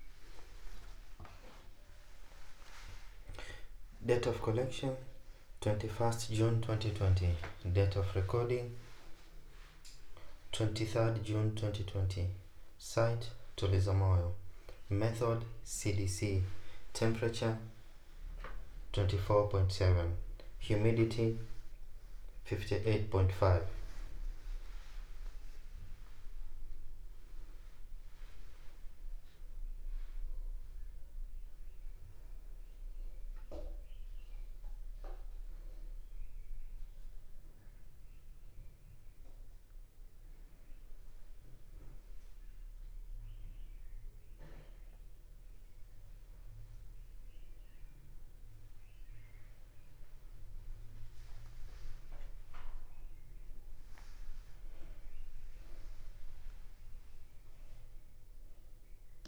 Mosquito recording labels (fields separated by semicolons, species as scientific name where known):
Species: no mosquito; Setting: cup